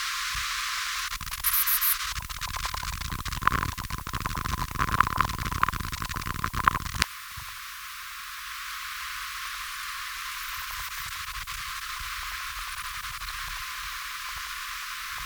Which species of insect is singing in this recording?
Callicrania ramburii